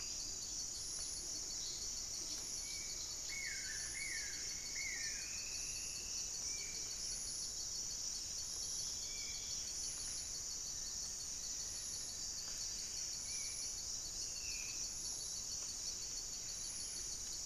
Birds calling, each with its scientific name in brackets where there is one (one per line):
Horned Screamer (Anhima cornuta)
Black-faced Antthrush (Formicarius analis)
Black-spotted Bare-eye (Phlegopsis nigromaculata)
Striped Woodcreeper (Xiphorhynchus obsoletus)
unidentified bird
Buff-breasted Wren (Cantorchilus leucotis)
Spot-winged Antshrike (Pygiptila stellaris)
Buff-throated Woodcreeper (Xiphorhynchus guttatus)